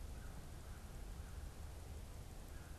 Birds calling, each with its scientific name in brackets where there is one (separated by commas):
American Crow (Corvus brachyrhynchos)